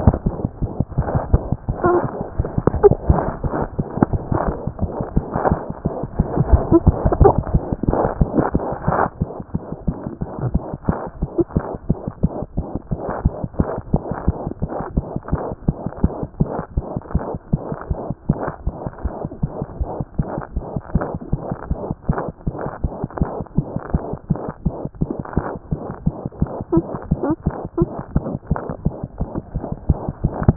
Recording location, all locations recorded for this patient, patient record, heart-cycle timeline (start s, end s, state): mitral valve (MV)
mitral valve (MV)
#Age: Infant
#Sex: Female
#Height: nan
#Weight: nan
#Pregnancy status: False
#Murmur: Present
#Murmur locations: mitral valve (MV)
#Most audible location: mitral valve (MV)
#Systolic murmur timing: Holosystolic
#Systolic murmur shape: Plateau
#Systolic murmur grading: I/VI
#Systolic murmur pitch: Medium
#Systolic murmur quality: Harsh
#Diastolic murmur timing: nan
#Diastolic murmur shape: nan
#Diastolic murmur grading: nan
#Diastolic murmur pitch: nan
#Diastolic murmur quality: nan
#Outcome: Abnormal
#Campaign: 2014 screening campaign
0.00	9.09	unannotated
9.09	9.20	diastole
9.20	9.27	S1
9.27	9.39	systole
9.39	9.45	S2
9.45	9.53	diastole
9.53	9.60	S1
9.60	9.72	systole
9.72	9.76	S2
9.76	9.86	diastole
9.86	9.93	S1
9.93	10.05	systole
10.05	10.10	S2
10.10	10.21	diastole
10.21	10.27	S1
10.27	10.39	systole
10.39	10.44	S2
10.44	10.55	diastole
10.55	10.61	S1
10.61	10.72	systole
10.72	10.77	S2
10.77	10.88	diastole
10.88	30.56	unannotated